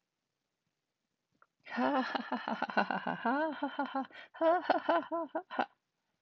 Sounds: Laughter